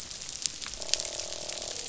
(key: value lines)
label: biophony, croak
recorder: SoundTrap 500